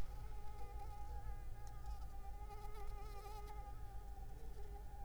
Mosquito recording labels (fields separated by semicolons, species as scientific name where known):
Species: Anopheles arabiensis; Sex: female; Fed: unfed; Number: one; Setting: cup